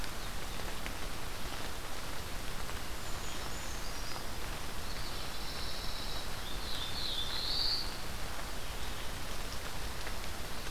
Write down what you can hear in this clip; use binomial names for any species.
Certhia americana, Setophaga pinus, Setophaga caerulescens